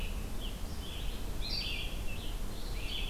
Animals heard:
Rose-breasted Grosbeak (Pheucticus ludovicianus), Red-eyed Vireo (Vireo olivaceus)

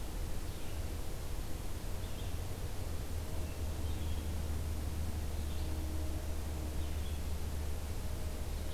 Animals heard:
Hermit Thrush (Catharus guttatus), Red-eyed Vireo (Vireo olivaceus)

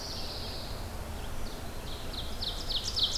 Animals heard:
Red-eyed Vireo (Vireo olivaceus), Pine Warbler (Setophaga pinus), Ovenbird (Seiurus aurocapilla)

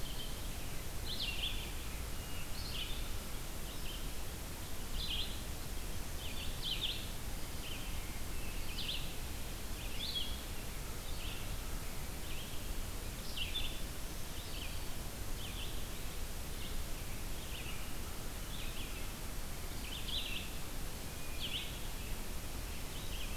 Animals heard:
Red-eyed Vireo (Vireo olivaceus), Black-throated Green Warbler (Setophaga virens)

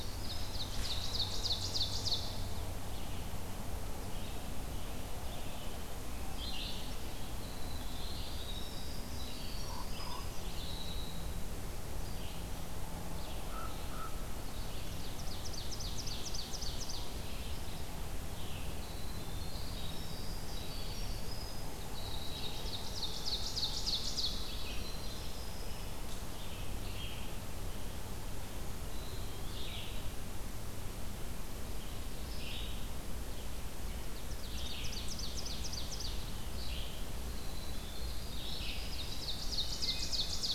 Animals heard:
Common Raven (Corvus corax), Ovenbird (Seiurus aurocapilla), Wood Thrush (Hylocichla mustelina), Eastern Wood-Pewee (Contopus virens), Red-eyed Vireo (Vireo olivaceus), Winter Wren (Troglodytes hiemalis)

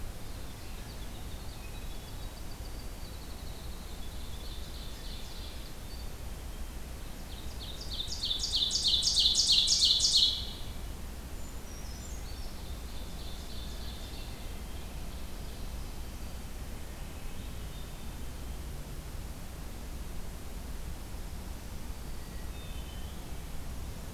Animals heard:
Black-throated Green Warbler (Setophaga virens), Winter Wren (Troglodytes hiemalis), Hermit Thrush (Catharus guttatus), Ovenbird (Seiurus aurocapilla), Black-throated Blue Warbler (Setophaga caerulescens), Brown Creeper (Certhia americana)

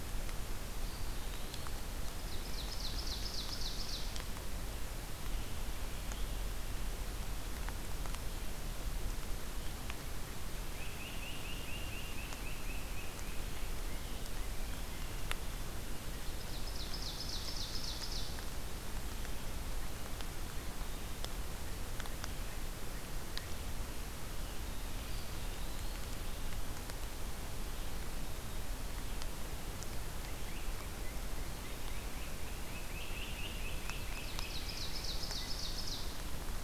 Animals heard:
Eastern Wood-Pewee (Contopus virens), Great Crested Flycatcher (Myiarchus crinitus), Ovenbird (Seiurus aurocapilla)

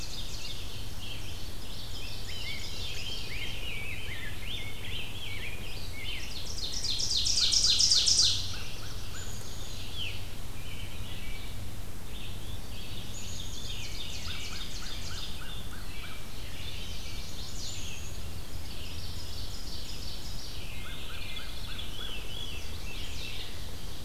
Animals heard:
American Crow (Corvus brachyrhynchos), Ovenbird (Seiurus aurocapilla), American Robin (Turdus migratorius), Chestnut-sided Warbler (Setophaga pensylvanica), Black-capped Chickadee (Poecile atricapillus), Red-eyed Vireo (Vireo olivaceus), Rose-breasted Grosbeak (Pheucticus ludovicianus), Black-throated Blue Warbler (Setophaga caerulescens), Veery (Catharus fuscescens)

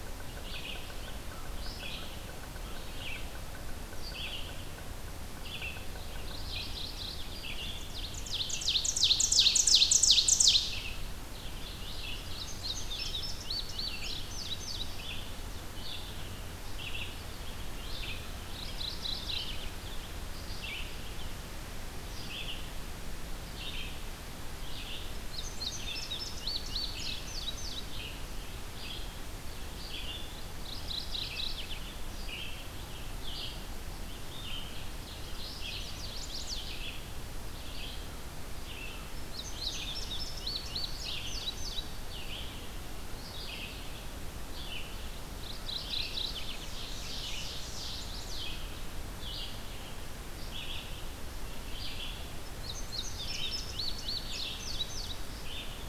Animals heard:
Chestnut-sided Warbler (Setophaga pensylvanica), Ovenbird (Seiurus aurocapilla), Mourning Warbler (Geothlypis philadelphia), Red-eyed Vireo (Vireo olivaceus), Yellow-bellied Sapsucker (Sphyrapicus varius), Indigo Bunting (Passerina cyanea)

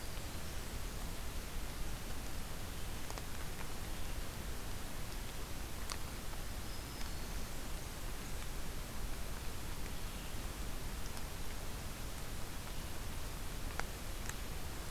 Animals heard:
Black-throated Green Warbler (Setophaga virens), Red-eyed Vireo (Vireo olivaceus)

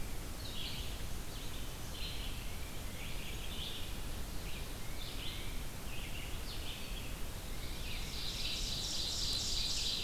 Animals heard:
Ovenbird (Seiurus aurocapilla), Tufted Titmouse (Baeolophus bicolor), Red-eyed Vireo (Vireo olivaceus)

